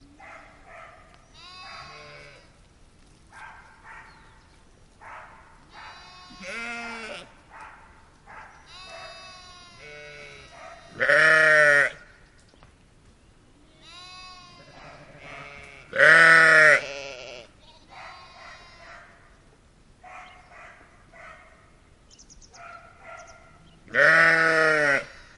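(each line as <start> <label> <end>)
0.0 A dog barks faintly in the distance across farmland. 1.3
1.4 Several sheep bleat clearly at close range against a rural background. 2.7
3.3 A dog barks faintly in the distance across farmland. 5.8
5.8 Several sheep bleat clearly at close range against a rural background. 7.4
7.6 A dog barks faintly in the distance across farmland. 8.9
9.8 Several sheep bleat clearly at close range against a rural background. 12.1
14.8 A dog barks faintly in the distance across farmland. 15.9
15.9 Several sheep bleat clearly at close range against a rural background. 17.7
18.0 A dog barks faintly in the distance across farmland. 19.3
20.0 A dog barks faintly in the distance across farmland. 23.9
23.9 Several sheep bleat clearly at close range against a rural background. 25.4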